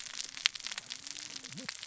{"label": "biophony, cascading saw", "recorder": "SoundTrap 600 or HydroMoth"}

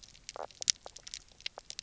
{"label": "biophony, knock croak", "recorder": "SoundTrap 300"}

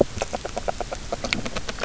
{"label": "biophony, grazing", "recorder": "SoundTrap 300"}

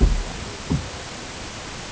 {"label": "ambient", "recorder": "HydroMoth"}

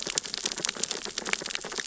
{"label": "biophony, sea urchins (Echinidae)", "recorder": "SoundTrap 600 or HydroMoth"}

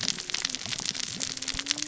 {"label": "biophony, cascading saw", "recorder": "SoundTrap 600 or HydroMoth"}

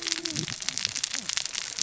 {"label": "biophony, cascading saw", "recorder": "SoundTrap 600 or HydroMoth"}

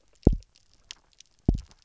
{"label": "biophony, double pulse", "recorder": "SoundTrap 300"}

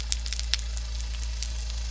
{"label": "anthrophony, boat engine", "recorder": "SoundTrap 300"}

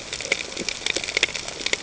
{"label": "ambient", "recorder": "HydroMoth"}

